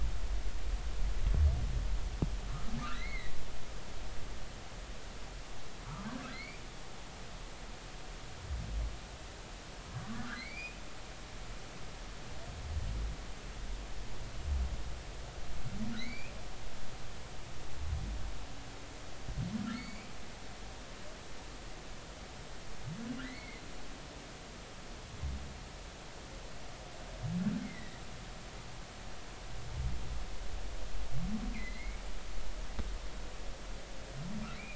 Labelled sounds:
2.9	3.3	humpback whale, 1.6 to 2.3 kHz
6.3	6.6	humpback whale, 2.0 to 2.5 kHz
9.9	10.8	humpback whale, 1.0 to 4.7 kHz
16.0	16.3	humpback whale, 1.8 to 2.7 kHz
19.7	21.1	humpback whale, 2.0 to 6.9 kHz
23.2	23.6	humpback whale, 1.9 to 2.3 kHz
27.6	28.0	humpback whale, 1.8 to 2.2 kHz
31.5	32.0	humpback whale, 2.0 to 4.2 kHz
34.5	34.7	humpback whale, 2.1 to 2.5 kHz

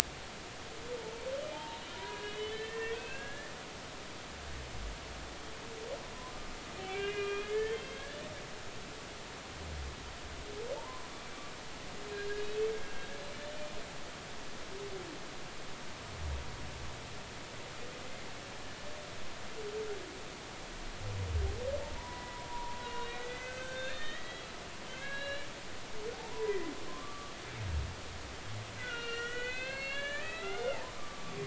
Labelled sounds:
1.5	3.5	humpback whale, 0.83 to 3.9 kHz
6.8	8.0	humpback whale, 1.5 to 3.4 kHz
10.7	11.1	humpback whale, 0.83 to 1.1 kHz
12.1	12.6	humpback whale, 3.7 to 4.2 kHz
12.8	13.1	humpback whale, 1.6 to 1.7 kHz
21.8	24.5	humpback whale, 0.86 to 4.4 kHz
24.9	27.3	humpback whale, 0.99 to 4.1 kHz
28.8	31.4	humpback whale, 1.1 to 5.8 kHz

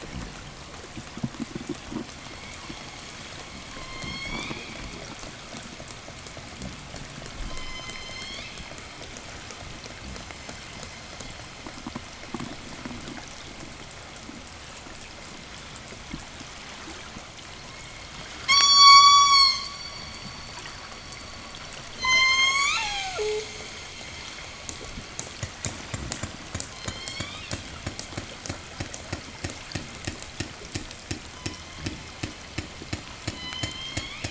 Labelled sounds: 2.0	5.2	killer whale, southern resident, call S01, 0 to 8.0 kHz
7.1	8.9	killer whale, southern resident, call S01, 0 to 8.0 kHz
18.3	20.0	killer whale, southern resident, call S16, 0.98 to 8.0 kHz
21.7	23.7	killer whale, southern resident, 0 to 8.0 kHz
24.4	32.7	killer whale, 0.87 to 8.0 kHz
26.3	28.1	killer whale, southern resident, 0 to 8.0 kHz
31.0	32.3	killer whale, southern resident, 0 to 8.0 kHz
33.0	34.2	killer whale, southern resident, 0 to 6.7 kHz

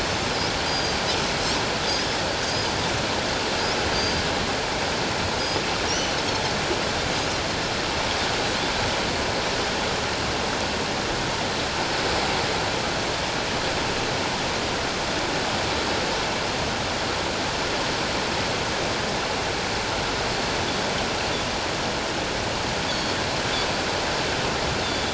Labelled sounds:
0.7	1.0	Pacific white-sided dolphin, 4.7 to 6.5 kHz
2.5	2.7	Pacific white-sided dolphin, 4.7 to 5.1 kHz
3.9	4.2	Pacific white-sided dolphin, 4.7 to 6.4 kHz
5.9	6.2	Pacific white-sided dolphin, 2.8 to 6.1 kHz
22.9	23.1	Pacific white-sided dolphin, 3.3 to 6.8 kHz

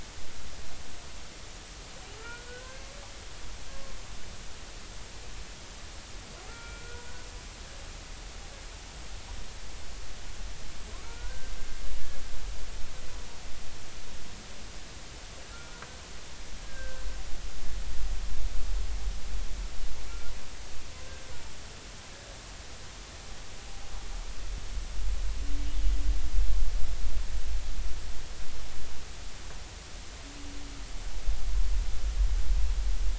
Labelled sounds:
2.2	2.9	humpback whale, 1.3 to 1.6 kHz
3.7	4.0	humpback whale, 0.99 to 1.1 kHz
6.5	7.1	humpback whale, 1.3 to 2.4 kHz
11.0	11.5	humpback whale, 1.3 to 1.6 kHz
15.5	17.0	humpback whale, 1.3 to 1.7 kHz
21.0	21.3	humpback whale, 1.5 to 1.6 kHz

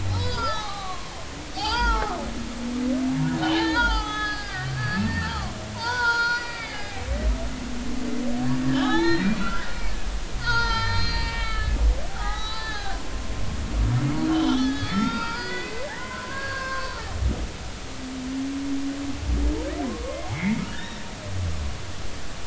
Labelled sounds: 0.0	2.1	humpback whale, 0.80 to 5.1 kHz
3.4	8.0	humpback whale, 0.80 to 6.8 kHz
8.6	9.7	humpback whale, 0.80 to 4.5 kHz
10.4	11.8	humpback whale, 0.83 to 6.3 kHz
12.1	13.7	humpback whale, 0.80 to 4.9 kHz
14.3	17.0	humpback whale, 0.86 to 5.2 kHz
19.8	21.0	humpback whale, 0.99 to 3.9 kHz

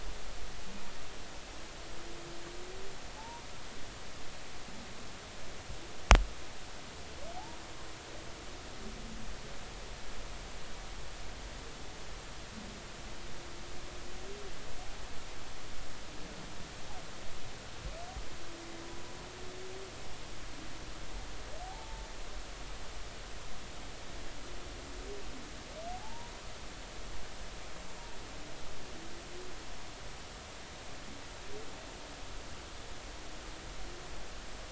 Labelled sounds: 3.2	3.4	humpback whale, 0.80 to 0.99 kHz
7.3	7.6	humpback whale, 0.80 to 0.99 kHz
21.6	22.1	humpback whale, 0.80 to 0.96 kHz
25.9	26.3	humpback whale, 0.80 to 1.0 kHz

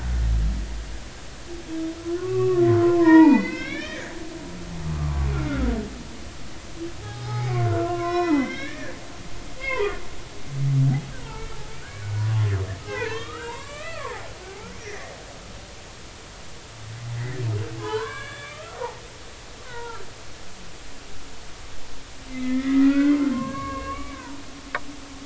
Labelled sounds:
2.2	4.2	humpback whale, 0.80 to 5.7 kHz
4.8	5.7	humpback whale, 0.96 to 1.5 kHz
7.0	8.9	humpback whale, 0.80 to 6.0 kHz
9.6	10.0	humpback whale, 0.90 to 3.4 kHz
11.2	11.6	humpback whale, 0.83 to 1.4 kHz
12.9	14.3	humpback whale, 0.80 to 3.8 kHz
14.8	15.1	humpback whale, 1.6 to 2.1 kHz
17.2	17.4	humpback whale, 1.7 to 2.1 kHz
17.7	19.0	humpback whale, 0.80 to 7.6 kHz
19.7	20.0	humpback whale, 0.86 to 1.6 kHz
22.3	24.4	humpback whale, 0.86 to 2.9 kHz

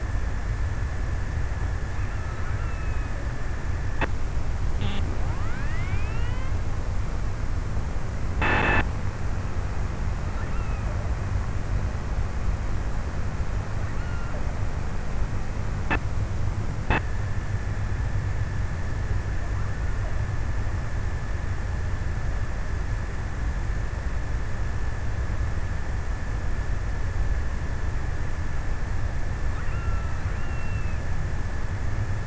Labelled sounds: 1.8	3.5	killer whale, offshore, 0.84 to 3.1 kHz
10.1	11.7	killer whale, offshore, 1.0 to 3.0 kHz
13.7	14.8	killer whale, offshore, 1.2 to 3.1 kHz
29.3	31.1	killer whale, offshore, 1.1 to 3.1 kHz

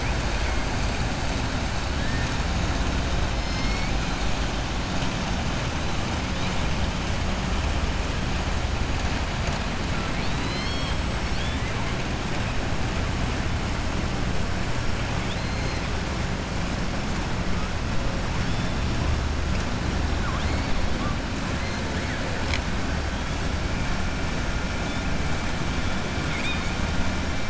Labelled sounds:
3.5	3.9	killer whale, southern resident, 2.1 to 2.4 kHz
9.9	11.0	killer whale, southern resident, 1.3 to 5.5 kHz
26.2	26.7	killer whale, southern resident, 1.3 to 4.7 kHz

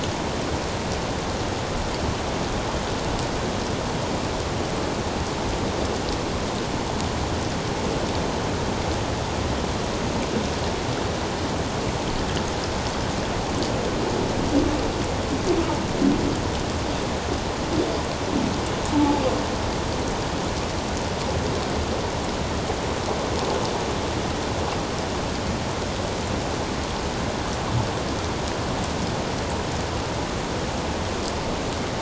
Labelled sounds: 18.9	19.2	humpback whale, 0.81 to 0.94 kHz

